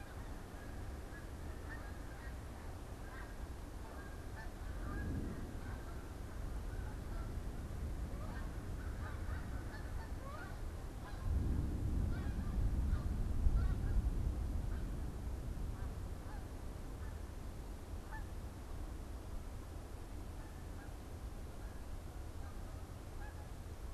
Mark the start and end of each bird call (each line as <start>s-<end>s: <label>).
0.0s-13.6s: Snow Goose (Anser caerulescens)
8.7s-9.7s: American Crow (Corvus brachyrhynchos)
13.5s-23.9s: unidentified bird